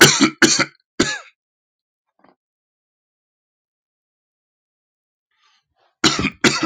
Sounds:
Cough